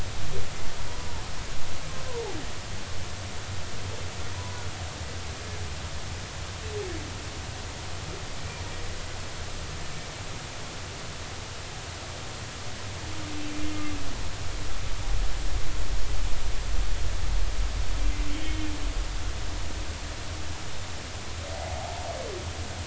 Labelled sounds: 4.3	4.6	humpback whale, 0.93 to 1.0 kHz
18.3	18.7	humpback whale, 3.0 to 3.2 kHz

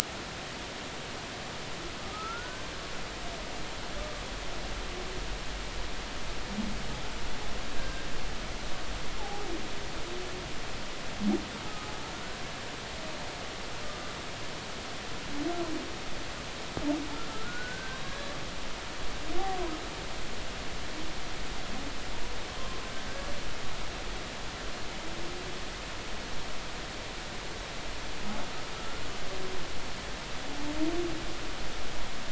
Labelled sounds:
2.1	2.7	humpback whale, 1.2 to 1.6 kHz
7.7	8.0	humpback whale, 1.5 to 1.7 kHz
9.2	9.4	humpback whale, 0.80 to 0.93 kHz
17.3	18.4	humpback whale, 1.3 to 1.8 kHz

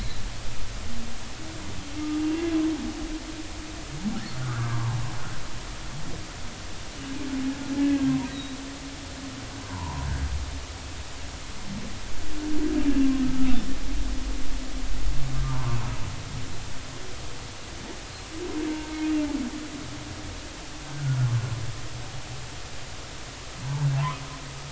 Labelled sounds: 2.2	2.4	humpback whale, 2.7 to 2.8 kHz
4.4	5.0	humpback whale, 0.83 to 1.7 kHz
7.8	8.6	humpback whale, 1.6 to 4.0 kHz
9.7	10.1	humpback whale, 0.83 to 1.1 kHz
13.2	13.6	humpback whale, 1.2 to 1.4 kHz
15.4	15.8	humpback whale, 0.86 to 1.2 kHz
18.7	18.9	humpback whale, 1.5 to 1.6 kHz
23.9	24.2	humpback whale, 0.80 to 1.3 kHz

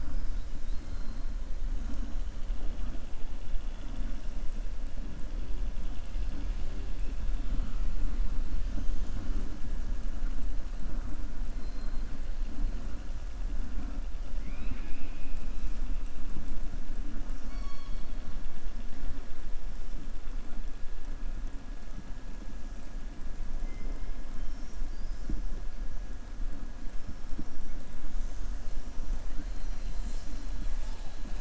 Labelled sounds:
0.6	1.3	killer whale, southern resident, 3.2 to 5.2 kHz
14.3	15.4	killer whale, southern resident, 0.88 to 4.1 kHz
17.2	18.2	killer whale, southern resident, 1.1 to 7.9 kHz

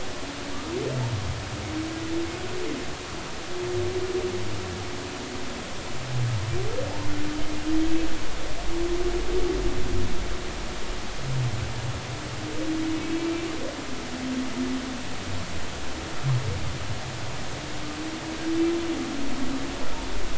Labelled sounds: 13.2	13.5	humpback whale, 2.3 to 2.4 kHz

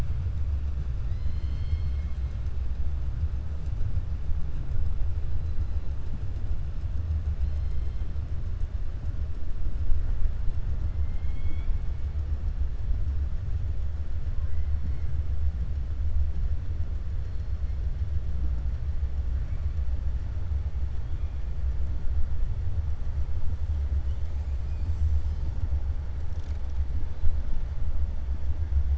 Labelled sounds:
1.0	2.1	killer whale, 1.8 to 6.2 kHz
11.0	11.8	killer whale, 0.93 to 4.4 kHz

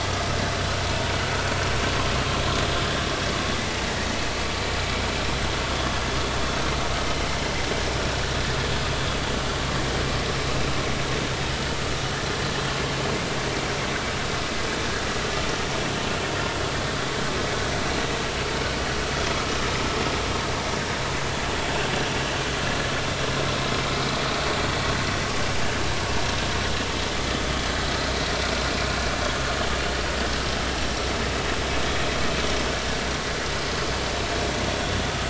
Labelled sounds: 10.5	10.8	vessel noise, 2.4 to 2.7 kHz

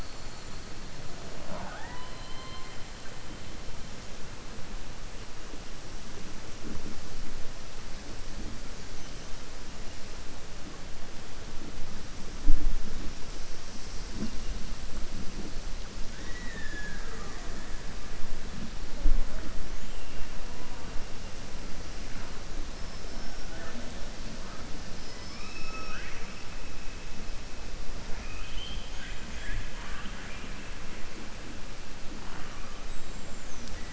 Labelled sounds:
16.1	17.5	killer whale, southern resident, 0.44 to 3.9 kHz
24.9	26.3	killer whale, southern resident, 0.65 to 5.8 kHz
28.2	29.2	killer whale, southern resident, 1.5 to 4.3 kHz

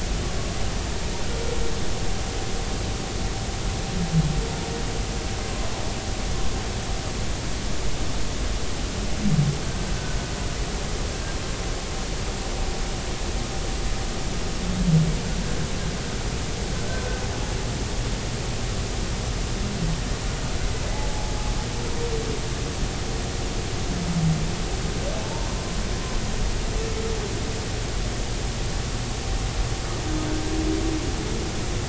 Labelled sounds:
21.1	21.4	humpback whale, 0.80 to 0.90 kHz
26.2	26.5	humpback whale, 0.83 to 1.1 kHz

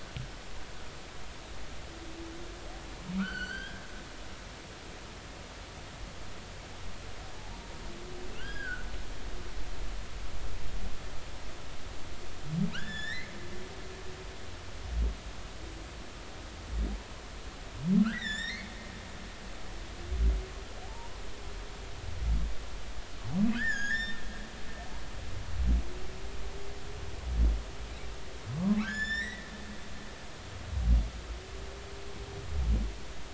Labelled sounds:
3.2	3.8	humpback whale, 1.1 to 4.6 kHz
8.4	8.8	humpback whale, 1.3 to 5.0 kHz
12.7	13.3	humpback whale, 1.2 to 7.3 kHz
18.0	18.7	humpback whale, 1.2 to 7.5 kHz
20.8	21.1	humpback whale, 0.80 to 0.99 kHz
23.6	24.2	humpback whale, 1.4 to 7.3 kHz
28.5	29.5	humpback whale, 0.93 to 7.3 kHz

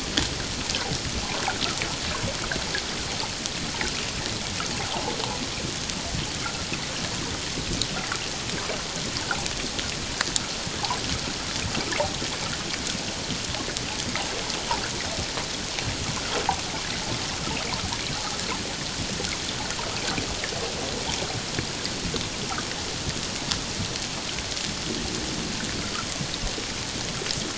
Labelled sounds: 4.8	5.1	water noise, 0.78 to 0.97 kHz

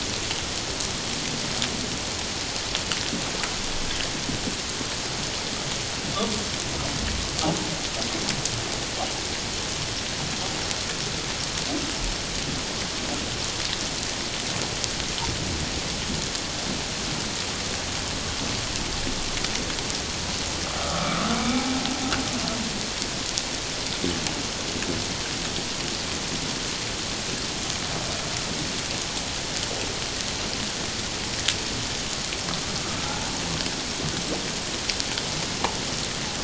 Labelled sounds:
20.7	21.6	humpback whale, 1.1 to 2.4 kHz

